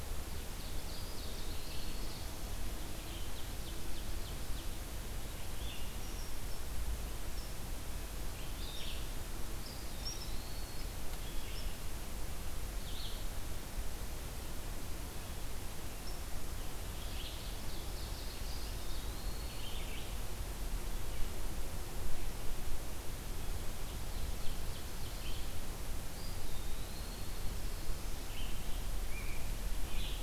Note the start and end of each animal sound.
[0.00, 30.22] Red-eyed Vireo (Vireo olivaceus)
[0.24, 2.20] Ovenbird (Seiurus aurocapilla)
[1.00, 2.24] Eastern Wood-Pewee (Contopus virens)
[2.95, 4.58] Ovenbird (Seiurus aurocapilla)
[9.57, 10.94] Eastern Wood-Pewee (Contopus virens)
[16.58, 18.71] Ovenbird (Seiurus aurocapilla)
[18.43, 19.82] Eastern Wood-Pewee (Contopus virens)
[23.55, 25.48] Ovenbird (Seiurus aurocapilla)
[26.10, 27.43] Eastern Wood-Pewee (Contopus virens)

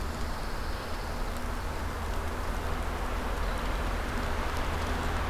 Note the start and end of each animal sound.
[0.00, 1.43] Pine Warbler (Setophaga pinus)

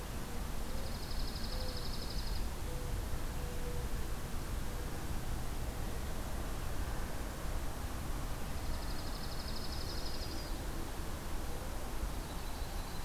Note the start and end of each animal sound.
[0.59, 2.49] Dark-eyed Junco (Junco hyemalis)
[1.45, 4.95] Mourning Dove (Zenaida macroura)
[8.39, 10.54] Dark-eyed Junco (Junco hyemalis)
[9.50, 10.67] Yellow-rumped Warbler (Setophaga coronata)
[12.10, 13.05] Yellow-rumped Warbler (Setophaga coronata)

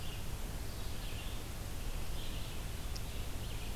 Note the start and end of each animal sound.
[0.00, 3.76] Red-eyed Vireo (Vireo olivaceus)

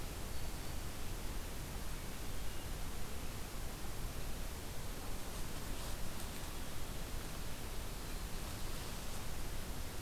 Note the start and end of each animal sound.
[0.20, 1.11] Black-throated Green Warbler (Setophaga virens)
[1.82, 2.65] Hermit Thrush (Catharus guttatus)

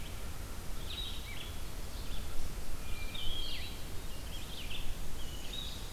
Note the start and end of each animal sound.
[0.00, 5.92] Red-eyed Vireo (Vireo olivaceus)
[2.54, 4.09] Hermit Thrush (Catharus guttatus)
[5.21, 5.92] Ovenbird (Seiurus aurocapilla)

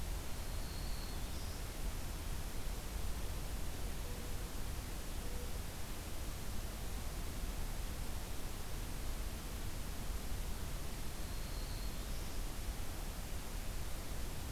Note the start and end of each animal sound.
[0.42, 1.64] Black-throated Green Warbler (Setophaga virens)
[11.13, 12.41] Black-throated Green Warbler (Setophaga virens)

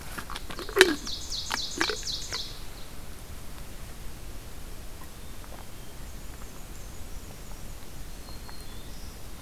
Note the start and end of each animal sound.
[0.67, 2.81] Ovenbird (Seiurus aurocapilla)
[5.92, 8.18] Black-and-white Warbler (Mniotilta varia)
[7.74, 9.42] Black-throated Green Warbler (Setophaga virens)

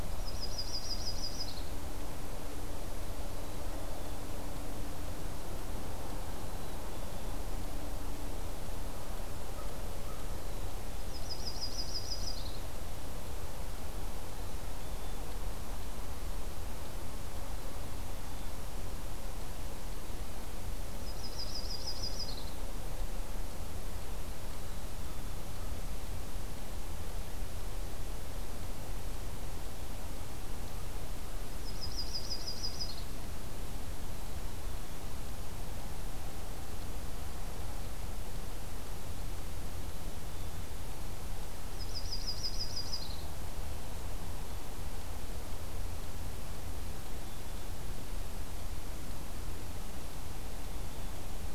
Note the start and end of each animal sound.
[0.13, 1.68] Yellow-rumped Warbler (Setophaga coronata)
[3.29, 4.17] Black-capped Chickadee (Poecile atricapillus)
[6.37, 7.25] Black-capped Chickadee (Poecile atricapillus)
[10.30, 11.10] Black-capped Chickadee (Poecile atricapillus)
[10.99, 12.64] Yellow-rumped Warbler (Setophaga coronata)
[14.33, 15.32] Black-capped Chickadee (Poecile atricapillus)
[17.48, 18.55] Black-capped Chickadee (Poecile atricapillus)
[20.90, 22.56] Yellow-rumped Warbler (Setophaga coronata)
[21.13, 22.16] Black-capped Chickadee (Poecile atricapillus)
[24.46, 25.48] Black-capped Chickadee (Poecile atricapillus)
[31.49, 33.15] Yellow-rumped Warbler (Setophaga coronata)
[39.77, 40.60] Black-capped Chickadee (Poecile atricapillus)
[41.73, 43.30] Yellow-rumped Warbler (Setophaga coronata)

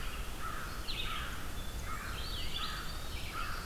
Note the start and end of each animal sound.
[0.00, 3.65] American Crow (Corvus brachyrhynchos)
[0.00, 3.65] Red-eyed Vireo (Vireo olivaceus)
[1.94, 3.46] Eastern Wood-Pewee (Contopus virens)
[2.91, 3.65] Black-throated Blue Warbler (Setophaga caerulescens)

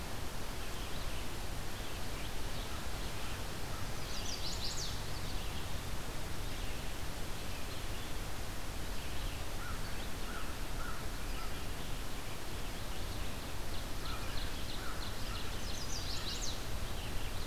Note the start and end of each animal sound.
[0.00, 13.49] Red-eyed Vireo (Vireo olivaceus)
[3.95, 4.97] Chestnut-sided Warbler (Setophaga pensylvanica)
[9.57, 11.62] American Crow (Corvus brachyrhynchos)
[13.48, 15.93] Ovenbird (Seiurus aurocapilla)
[13.90, 15.59] American Crow (Corvus brachyrhynchos)
[15.41, 16.61] Chestnut-sided Warbler (Setophaga pensylvanica)
[15.71, 17.46] Red-eyed Vireo (Vireo olivaceus)

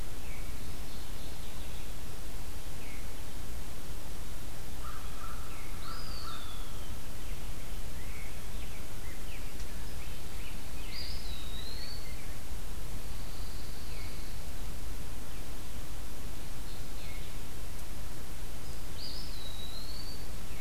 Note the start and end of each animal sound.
[0.51, 1.96] Mourning Warbler (Geothlypis philadelphia)
[4.53, 6.78] American Crow (Corvus brachyrhynchos)
[5.65, 7.15] Eastern Wood-Pewee (Contopus virens)
[7.75, 12.40] Rose-breasted Grosbeak (Pheucticus ludovicianus)
[10.82, 12.38] Eastern Wood-Pewee (Contopus virens)
[12.86, 14.40] Pine Warbler (Setophaga pinus)
[18.89, 20.44] Eastern Wood-Pewee (Contopus virens)

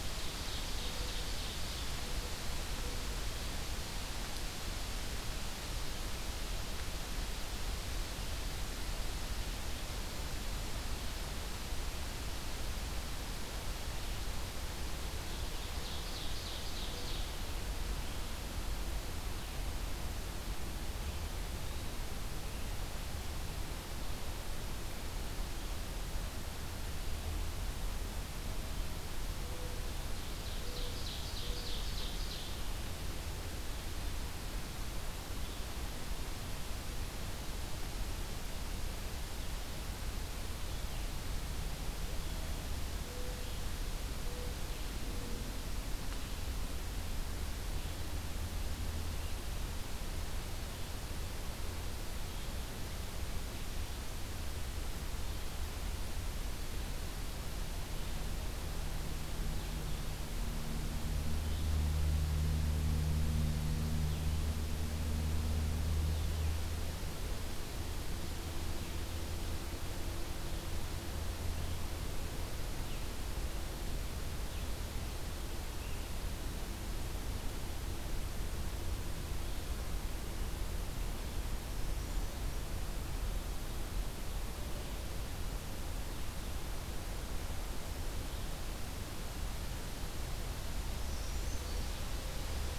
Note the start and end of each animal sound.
[0.00, 1.96] Ovenbird (Seiurus aurocapilla)
[0.70, 3.37] Mourning Dove (Zenaida macroura)
[15.04, 17.32] Mourning Dove (Zenaida macroura)
[15.50, 17.36] Ovenbird (Seiurus aurocapilla)
[28.36, 31.96] Mourning Dove (Zenaida macroura)
[30.39, 32.61] Ovenbird (Seiurus aurocapilla)
[41.93, 45.78] Mourning Dove (Zenaida macroura)
[43.16, 79.83] Blue-headed Vireo (Vireo solitarius)
[81.51, 82.69] Brown Creeper (Certhia americana)
[91.06, 91.90] Brown Creeper (Certhia americana)
[91.17, 92.78] Mourning Dove (Zenaida macroura)

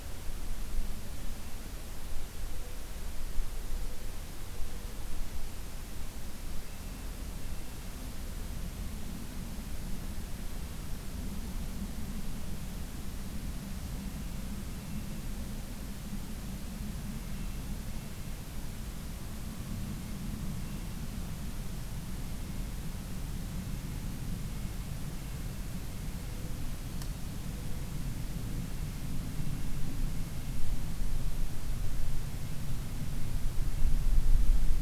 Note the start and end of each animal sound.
[13.86, 15.43] Red-breasted Nuthatch (Sitta canadensis)
[16.95, 18.89] Red-breasted Nuthatch (Sitta canadensis)
[20.46, 21.33] Red-breasted Nuthatch (Sitta canadensis)
[23.23, 25.43] Red-breasted Nuthatch (Sitta canadensis)
[28.55, 30.71] Red-breasted Nuthatch (Sitta canadensis)

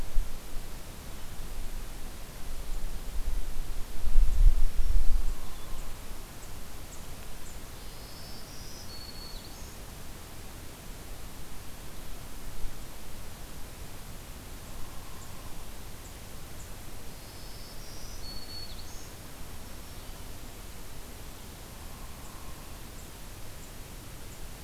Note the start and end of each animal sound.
[4.09, 5.34] Black-throated Green Warbler (Setophaga virens)
[5.19, 5.96] Hairy Woodpecker (Dryobates villosus)
[5.32, 5.86] Blue-headed Vireo (Vireo solitarius)
[7.69, 9.79] Black-throated Green Warbler (Setophaga virens)
[14.66, 15.74] Hairy Woodpecker (Dryobates villosus)
[16.99, 20.30] Black-throated Green Warbler (Setophaga virens)
[21.61, 22.93] Hairy Woodpecker (Dryobates villosus)

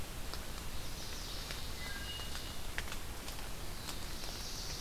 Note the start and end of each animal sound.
[0.59, 2.23] Ovenbird (Seiurus aurocapilla)
[1.71, 2.40] Wood Thrush (Hylocichla mustelina)
[3.53, 4.80] Black-throated Blue Warbler (Setophaga caerulescens)

